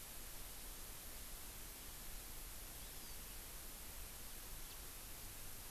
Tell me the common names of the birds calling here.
Hawaii Amakihi, House Finch